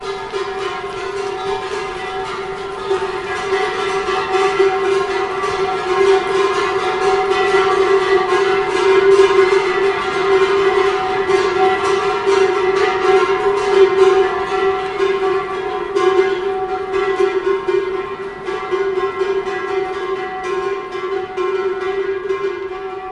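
Cowbells ring hollowly and constantly in the distance. 0.0 - 23.1

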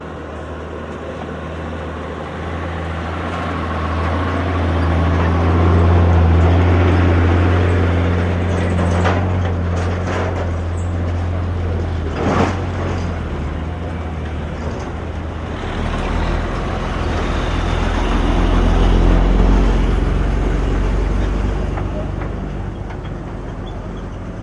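Engine sounds accelerate and decelerate. 0.0 - 24.4
Objects rattling nearby. 6.2 - 13.6
Objects rattling with a squeaky sound. 21.9 - 24.4

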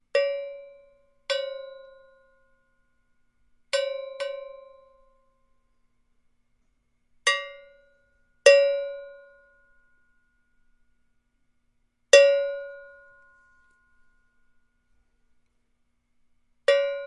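Metallic percussion sounds in a clear, rhythmic manner. 0.1 - 2.6
Metallic percussion sounds in a clear, rhythmic manner. 3.7 - 5.4
Metallic percussion sounds in a clear, rhythmic manner. 7.2 - 10.5
Metallic percussion sounds in a clear, rhythmic manner. 12.1 - 14.4
Metallic percussion instruments sound clear and rhythmic. 16.6 - 17.1

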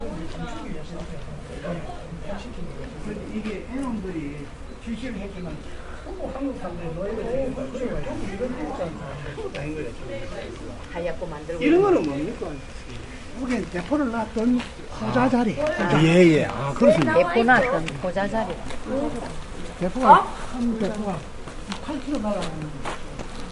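Several people are having a conversation. 0.1 - 23.5

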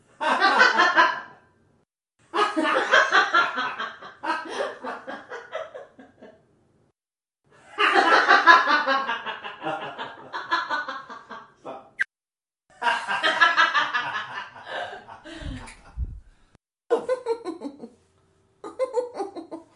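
Multiple voices laugh in short bursts, creating a cheerful sound. 0.2 - 1.2
Multiple voices laugh in short bursts, creating a cheerful sound. 2.3 - 5.9
Multiple voices laugh in short bursts, creating a cheerful sound. 7.8 - 12.1
Multiple voices laugh in short bursts, creating a cheerful sound. 12.8 - 16.1
A single voice emits mischievous, short bursts of laughter. 16.9 - 17.9
A single voice emits mischievous, short bursts of laughter. 18.6 - 19.8

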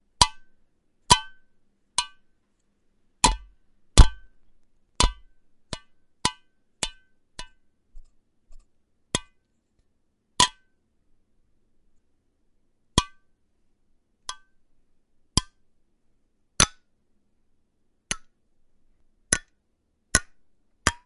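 Metal hitting metal with a high-pitched sound. 0.0 - 0.4
Metal hitting metal with a high-pitched sound. 1.0 - 1.3
Metal hitting metal with a high-pitched sound. 1.9 - 2.1
Metal hitting metal. 3.1 - 4.2
Metal hitting metal. 4.9 - 7.5
Metal hitting metal with a high-pitched sound. 9.1 - 9.2
Metal hitting metal with a high-pitched sound. 10.4 - 10.5
Metal hitting metal with a high-pitched sound. 12.9 - 13.1
Metal hitting metal with a high-pitched sound. 14.3 - 14.4
Metal hitting metal with a high-pitched sound. 15.3 - 15.5
Metal hitting metal with a high-pitched note. 16.5 - 16.7
Metal hitting metal with a high-pitched sound. 18.1 - 18.2
Metal hitting metal. 19.3 - 19.5
Metal hitting metal with a high-pitched sound. 20.1 - 21.0

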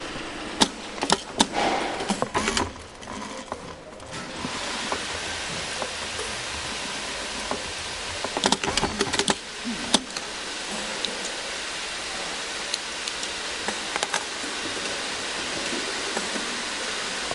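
Continuous noise of a factory machine in a hall. 0.0 - 1.9
Repetitive metallic clicking noises. 0.5 - 2.4
A screw is being tightened. 2.2 - 4.3
Loud and continuous noise of a factory machine. 4.3 - 17.3
Quiet rustling of small hard objects. 4.7 - 17.3

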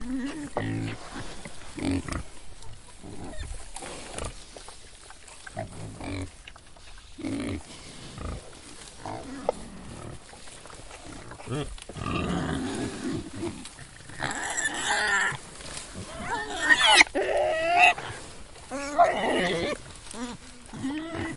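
A pig grunts in a relaxed manner while eating. 0.1 - 14.1
Pigs grunt loudly in dissatisfaction. 14.2 - 21.4

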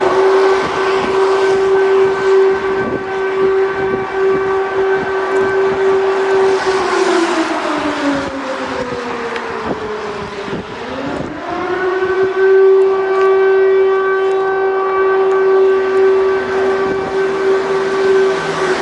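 An alarm siren sounds outdoors with wind. 0.1 - 6.8
An alarm siren fades outdoors under windy conditions. 6.8 - 10.6
An alarm siren swells outdoors in windy conditions. 10.6 - 12.4
An alarm siren sounds outdoors with wind. 12.3 - 18.8

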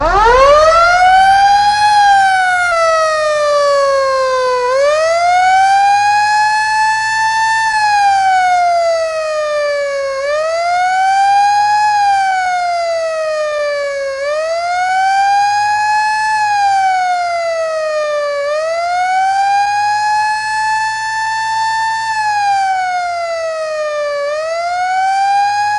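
A long, wailing emergency siren gradually fades out. 0.0 - 25.8

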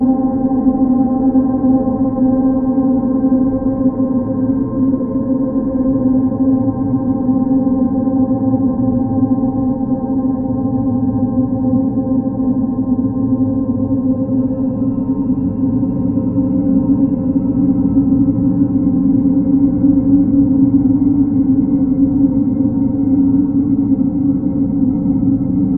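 Ambient droning with an echo in a spacious place. 0.0 - 25.8

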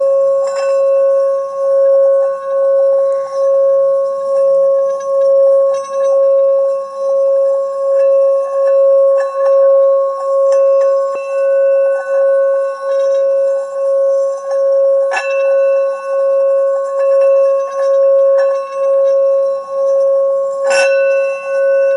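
A sharp, high-pitched bell rings briefly with a distinct metallic tone. 0.4 - 1.2
A continuous, low-pitched humming vibration that is steady and resonant. 0.4 - 21.9
A sharp, clear, high-pitched bell rings briefly with a distinct metallic tone. 8.5 - 11.9
A sharp, high-pitched bell rings briefly with a distinct metallic tone. 14.6 - 21.9

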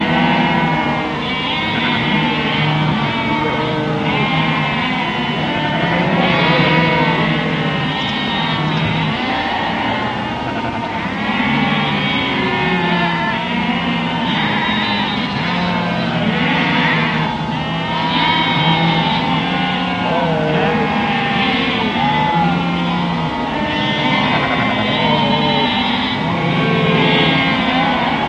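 Sheep bleating. 0.0 - 28.3

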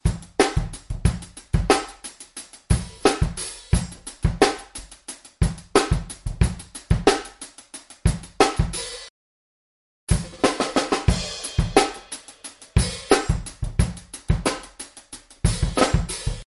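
A snare drum is being hit rhythmically and continuously. 0.0 - 9.1
A kick drum is being played rhythmically with occasional pauses. 0.0 - 9.1
A cymbal is hit once, with the sound fading. 3.6 - 4.1
A drum cymbal is hit once, with the sound fading. 8.5 - 9.2
A kick drum is being played repeatedly with a constant beat. 10.1 - 16.5
A snare drum is hit rapidly and repeatedly. 10.4 - 11.1
A cymbal is hit once and the sound fades. 11.1 - 11.6
A snare drum is hit repeatedly to a specific beat. 11.6 - 16.5
A cymbal is hit once and the sound fades. 12.7 - 13.1
A cymbal is hit once and the sound fades. 15.9 - 16.5

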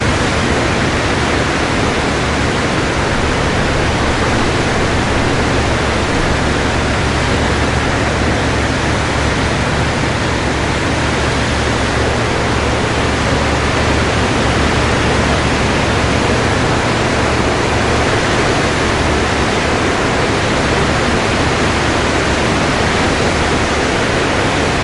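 Irregular, faint bubbling of water at the shoreline. 0.0 - 24.8
Loud waves crashing onto the shoreline at a beach. 0.0 - 24.8

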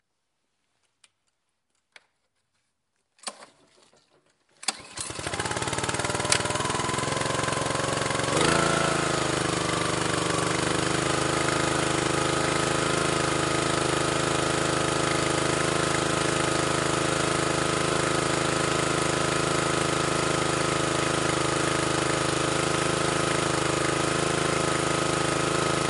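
A clicking sound. 3.2 - 3.6
A lawn mower is being turned on. 4.4 - 8.1
A lawn mower is cutting grass. 8.1 - 25.9

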